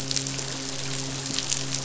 {"label": "biophony, midshipman", "recorder": "SoundTrap 500"}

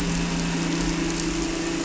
{"label": "anthrophony, boat engine", "recorder": "SoundTrap 300"}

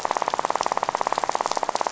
{"label": "biophony, rattle", "recorder": "SoundTrap 500"}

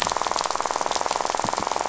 {"label": "biophony, rattle", "recorder": "SoundTrap 500"}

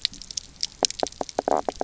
{"label": "biophony, knock croak", "recorder": "SoundTrap 300"}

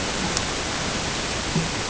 {"label": "ambient", "recorder": "HydroMoth"}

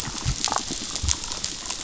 {"label": "biophony, damselfish", "recorder": "SoundTrap 500"}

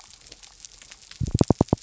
{"label": "biophony", "recorder": "SoundTrap 300"}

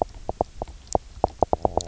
{"label": "biophony, knock croak", "recorder": "SoundTrap 300"}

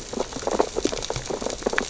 {"label": "biophony, sea urchins (Echinidae)", "recorder": "SoundTrap 600 or HydroMoth"}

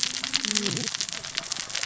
{"label": "biophony, cascading saw", "recorder": "SoundTrap 600 or HydroMoth"}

